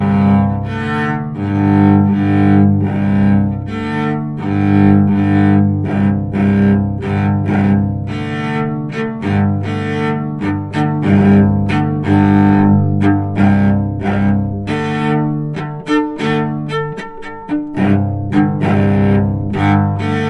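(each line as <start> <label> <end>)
0.0 Strings of a cello being played repeatedly. 20.3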